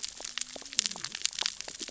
{"label": "biophony, cascading saw", "recorder": "SoundTrap 600 or HydroMoth"}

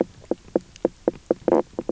{"label": "biophony, knock croak", "recorder": "SoundTrap 300"}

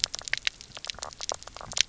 {"label": "biophony, knock croak", "recorder": "SoundTrap 300"}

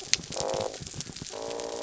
{"label": "biophony", "recorder": "SoundTrap 300"}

